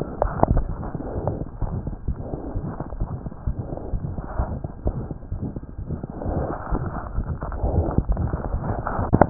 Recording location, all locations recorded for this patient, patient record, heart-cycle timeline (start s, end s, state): tricuspid valve (TV)
tricuspid valve (TV)+mitral valve (MV)
#Age: Child
#Sex: Male
#Height: 87.0 cm
#Weight: 12.3 kg
#Pregnancy status: False
#Murmur: Present
#Murmur locations: mitral valve (MV)+tricuspid valve (TV)
#Most audible location: tricuspid valve (TV)
#Systolic murmur timing: Mid-systolic
#Systolic murmur shape: Diamond
#Systolic murmur grading: I/VI
#Systolic murmur pitch: Low
#Systolic murmur quality: Harsh
#Diastolic murmur timing: nan
#Diastolic murmur shape: nan
#Diastolic murmur grading: nan
#Diastolic murmur pitch: nan
#Diastolic murmur quality: nan
#Outcome: Abnormal
#Campaign: 2015 screening campaign
0.00	2.06	unannotated
2.06	2.14	S1
2.14	2.30	systole
2.30	2.38	S2
2.38	2.53	diastole
2.53	2.61	S1
2.61	2.78	systole
2.78	2.84	S2
2.84	2.99	diastole
2.99	3.06	S1
3.06	3.23	systole
3.23	3.32	S2
3.32	3.45	diastole
3.45	3.53	S1
3.53	3.71	systole
3.71	3.77	S2
3.77	3.91	diastole
3.91	3.99	S1
3.99	4.17	systole
4.17	4.22	S2
4.22	4.38	diastole
4.38	4.46	S1
4.46	4.62	systole
4.62	4.69	S2
4.69	4.84	diastole
4.84	4.93	S1
4.93	5.09	systole
5.09	5.15	S2
5.15	5.29	diastole
5.29	5.39	S1
5.39	5.54	systole
5.54	5.61	S2
5.61	5.77	diastole
5.77	5.85	S1
5.85	9.30	unannotated